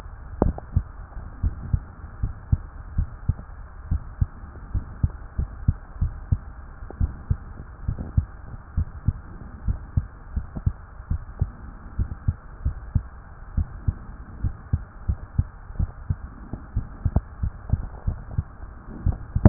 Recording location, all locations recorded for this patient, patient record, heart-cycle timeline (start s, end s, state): tricuspid valve (TV)
aortic valve (AV)+pulmonary valve (PV)+tricuspid valve (TV)+mitral valve (MV)
#Age: Child
#Sex: Male
#Height: 124.0 cm
#Weight: 29.6 kg
#Pregnancy status: False
#Murmur: Absent
#Murmur locations: nan
#Most audible location: nan
#Systolic murmur timing: nan
#Systolic murmur shape: nan
#Systolic murmur grading: nan
#Systolic murmur pitch: nan
#Systolic murmur quality: nan
#Diastolic murmur timing: nan
#Diastolic murmur shape: nan
#Diastolic murmur grading: nan
#Diastolic murmur pitch: nan
#Diastolic murmur quality: nan
#Outcome: Normal
#Campaign: 2015 screening campaign
0.00	0.38	diastole
0.38	0.56	S1
0.56	0.72	systole
0.72	0.88	S2
0.88	1.40	diastole
1.40	1.54	S1
1.54	1.66	systole
1.66	1.78	S2
1.78	2.19	diastole
2.19	2.34	S1
2.34	2.49	systole
2.49	2.59	S2
2.59	2.93	diastole
2.93	3.10	S1
3.10	3.24	systole
3.24	3.38	S2
3.38	3.88	diastole
3.88	4.02	S1
4.02	4.17	systole
4.17	4.30	S2
4.30	4.72	diastole
4.72	4.84	S1
4.84	4.98	systole
4.98	5.12	S2
5.12	5.34	diastole
5.34	5.50	S1
5.50	5.66	systole
5.66	5.75	S2
5.75	6.00	diastole
6.00	6.14	S1
6.14	6.28	systole
6.28	6.42	S2
6.42	6.97	diastole
6.97	7.12	S1
7.12	7.26	systole
7.26	7.38	S2
7.38	7.84	diastole
7.84	7.98	S1
7.98	8.14	systole
8.14	8.26	S2
8.26	8.75	diastole
8.75	8.88	S1
8.88	9.04	systole
9.04	9.16	S2
9.16	9.64	diastole
9.64	9.78	S1
9.78	9.94	systole
9.94	10.04	S2
10.04	10.34	diastole
10.34	10.46	S1
10.46	10.63	systole
10.63	10.75	S2
10.75	11.10	diastole
11.10	11.22	S1
11.22	11.37	systole
11.37	11.51	S2
11.51	11.95	diastole
11.95	12.08	S1
12.08	12.26	systole
12.26	12.36	S2
12.36	12.62	diastole
12.62	12.78	S1
12.78	12.92	systole
12.92	13.06	S2
13.06	13.54	diastole
13.54	13.68	S1
13.68	13.84	systole
13.84	13.96	S2
13.96	14.42	diastole
14.42	14.56	S1
14.56	14.70	systole
14.70	14.84	S2
14.84	15.06	diastole
15.06	15.17	S1
15.17	15.36	systole
15.36	15.50	S2
15.50	15.76	diastole
15.76	15.90	S1
15.90	16.07	systole
16.07	16.15	S2
16.15	16.52	diastole
16.52	16.53	S1